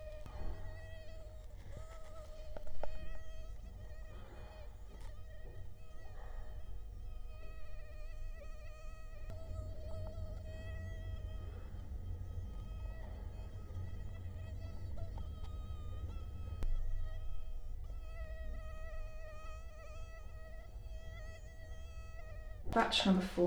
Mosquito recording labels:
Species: Culex quinquefasciatus; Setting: cup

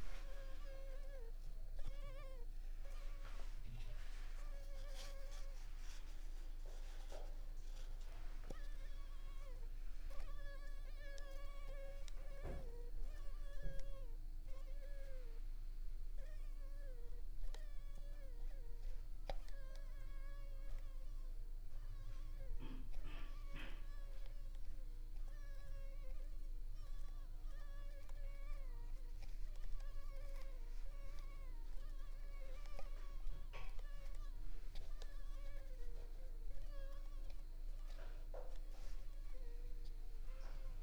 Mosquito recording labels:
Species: Culex pipiens complex; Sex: female; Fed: unfed; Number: one; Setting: cup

